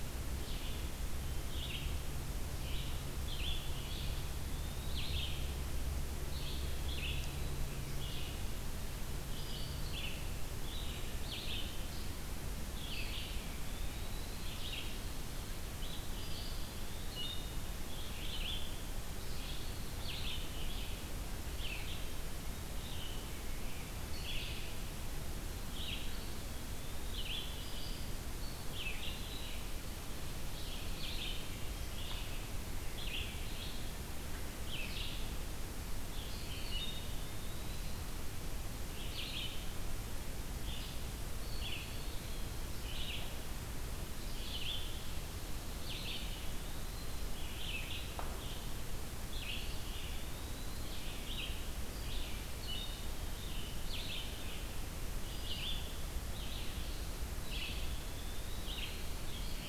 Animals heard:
Red-eyed Vireo (Vireo olivaceus)
Eastern Wood-Pewee (Contopus virens)

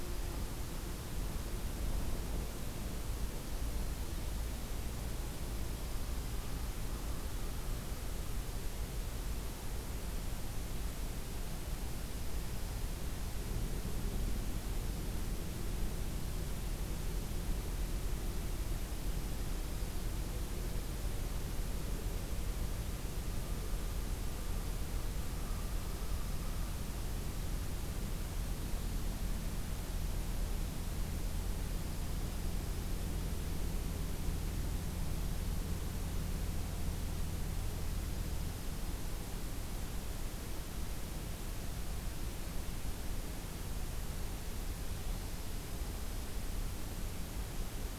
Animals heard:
American Crow (Corvus brachyrhynchos)
Dark-eyed Junco (Junco hyemalis)

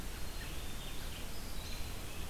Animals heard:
Black-capped Chickadee (Poecile atricapillus)
American Robin (Turdus migratorius)
Red-eyed Vireo (Vireo olivaceus)

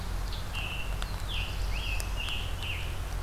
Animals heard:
Scarlet Tanager (Piranga olivacea)
Black-throated Blue Warbler (Setophaga caerulescens)
Ovenbird (Seiurus aurocapilla)

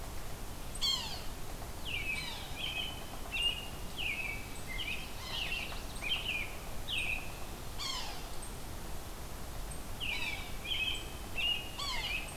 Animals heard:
Yellow-bellied Sapsucker (Sphyrapicus varius)
American Robin (Turdus migratorius)
Yellow-rumped Warbler (Setophaga coronata)

